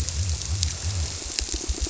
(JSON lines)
{"label": "biophony", "recorder": "SoundTrap 300"}